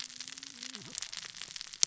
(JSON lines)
{"label": "biophony, cascading saw", "recorder": "SoundTrap 600 or HydroMoth"}